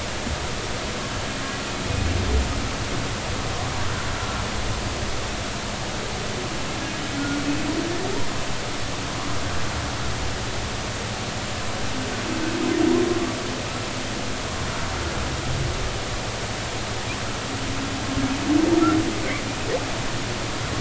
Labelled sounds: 7.1	7.4	humpback whale, 1.4 to 1.5 kHz

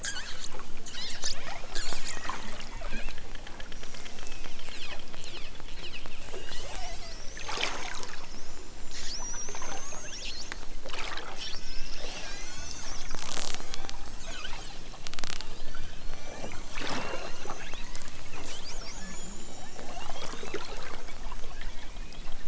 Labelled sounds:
0.0	2.2	killer whale, southern Alaska resident, 0.92 to 8.0 kHz
2.7	3.2	killer whale, southern Alaska resident, 1.2 to 4.6 kHz
3.6	7.1	killer whale, southern Alaska resident, 1.1 to 6.6 kHz
9.7	10.3	killer whale, southern Alaska resident, 1.1 to 4.6 kHz
11.4	13.0	killer whale, southern Alaska resident, 1.0 to 8.0 kHz
13.6	14.7	killer whale, southern Alaska resident, 0.32 to 6.6 kHz
15.8	16.8	killer whale, southern Alaska resident, 0.69 to 6.5 kHz
17.0	18.2	killer whale, southern Alaska resident, 0.55 to 7.1 kHz
19.0	20.8	killer whale, southern Alaska resident, 2.4 to 6.0 kHz
21.4	22.4	killer whale, southern Alaska resident, 1.2 to 4.2 kHz

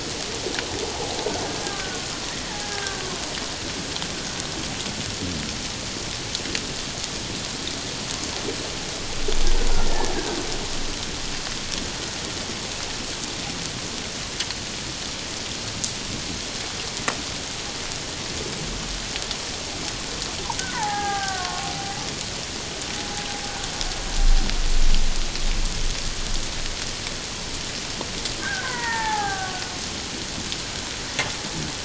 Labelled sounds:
1.6	2.0	killer whale, Bigg's (transient), 1.4 to 1.7 kHz
2.6	3.0	killer whale, Bigg's (transient), 1.5 to 1.8 kHz
9.8	10.1	killer whale, Bigg's (transient), 1.7 to 1.9 kHz
20.6	21.7	killer whale, Bigg's (transient), 0.78 to 1.8 kHz
28.4	29.6	killer whale, Bigg's (transient), 0.78 to 2.1 kHz

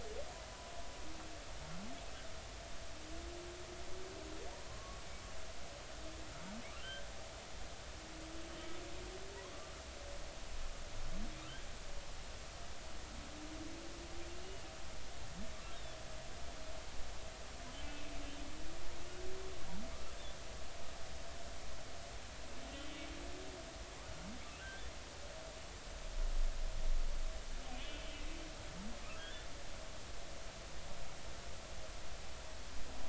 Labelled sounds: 4.7	5.0	humpback whale, 0.99 to 1.2 kHz
27.7	28.0	humpback whale, 2.4 to 2.7 kHz
29.2	29.5	humpback whale, 1.4 to 3.6 kHz

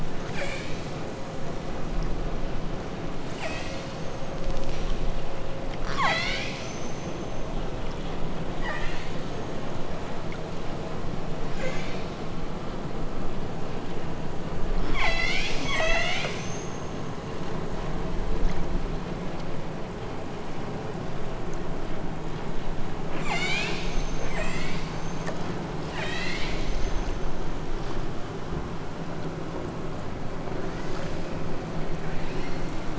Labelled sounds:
0.2	1.1	killer whale, southern Alaska resident, 0.27 to 8.0 kHz
3.1	5.1	killer whale, southern Alaska resident, 0.57 to 8.0 kHz
5.8	7.7	killer whale, southern Alaska resident, 0.37 to 8.0 kHz
8.6	9.9	killer whale, southern Alaska resident, 0.64 to 8.0 kHz
11.5	12.2	killer whale, southern Alaska resident, 0.68 to 7.4 kHz
14.8	17.2	killer whale, southern Alaska resident, 0.51 to 8.0 kHz
23.0	25.4	killer whale, southern Alaska resident, 0.41 to 8.0 kHz
25.9	27.5	killer whale, southern Alaska resident, 0.61 to 8.0 kHz
30.6	31.4	killer whale, southern Alaska resident, 1.1 to 5.7 kHz
32.0	32.8	killer whale, southern Alaska resident, 1.3 to 6.3 kHz

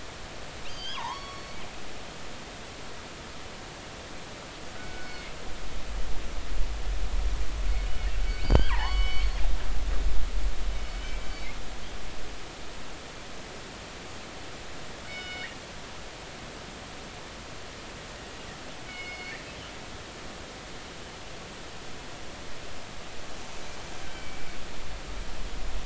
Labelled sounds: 0.6	1.0	killer whale, northern resident, G clan, 3.0 to 6.5 kHz
0.9	1.6	killer whale, northern resident, G clan, call N23i, 0.80 to 5.6 kHz
5.0	5.3	killer whale, northern resident, G clan, call N24ii, 2.1 to 4.5 kHz
5.8	6.3	killer whale, northern resident, G clan, call N24ii, 1.4 to 1.5 kHz
7.7	9.3	killer whale, northern resident, G clan, 0.80 to 4.9 kHz
11.0	11.6	killer whale, northern resident, G clan, call N24ii, 2.0 to 4.6 kHz
15.1	15.5	killer whale, northern resident, G clan, call N24ii, 1.4 to 5.3 kHz
18.9	19.4	killer whale, northern resident, G clan, call N24ii, 2.1 to 5.2 kHz
24.1	24.4	killer whale, northern resident, G clan, call N24ii, 2.2 to 2.4 kHz

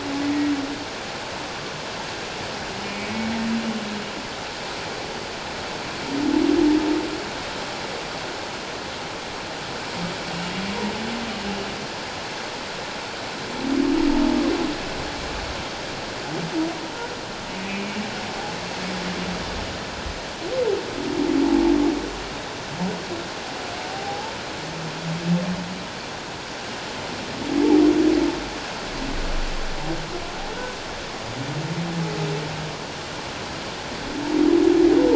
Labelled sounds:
2.8	3.1	humpback whale, 2.2 to 2.6 kHz
17.5	18.0	humpback whale, 2.2 to 2.6 kHz
23.9	24.3	humpback whale, 0.78 to 0.94 kHz

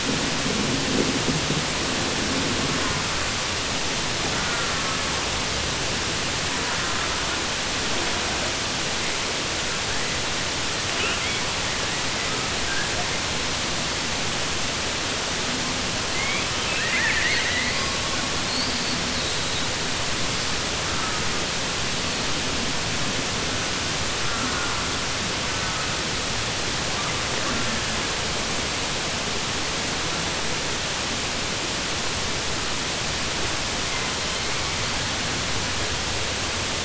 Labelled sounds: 16.5	17.9	killer whale, southern resident, 0.95 to 4.4 kHz

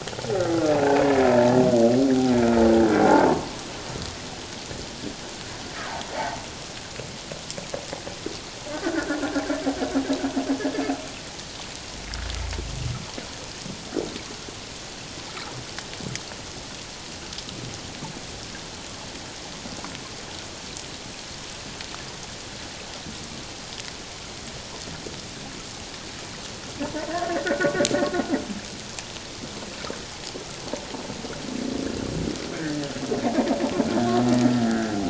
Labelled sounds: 3.1	3.5	humpback whale, 0.78 to 1.2 kHz
8.7	9.4	humpback whale, 1.3 to 1.8 kHz
27.1	27.9	humpback whale, 1.4 to 1.9 kHz
32.5	32.8	humpback whale, 1.5 to 1.9 kHz
34.6	35.0	humpback whale, 1.3 to 1.8 kHz

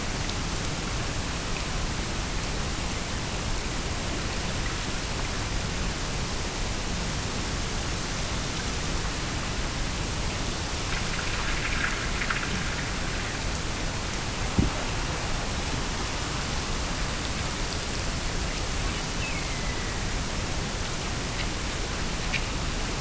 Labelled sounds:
19.0	20.3	killer whale, Bigg's (transient), Gulf of Alaska transient, 1.7 to 3.0 kHz

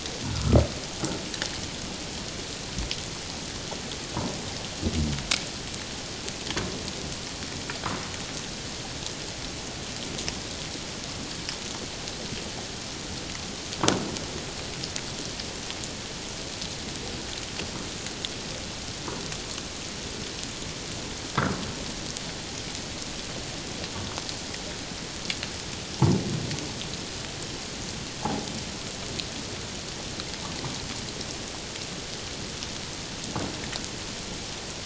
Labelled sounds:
0.2	0.6	humpback whale, 1.2 to 1.5 kHz
21.3	21.6	humpback whale, 1.1 to 1.7 kHz
28.2	28.5	humpback whale, 0.78 to 1.0 kHz

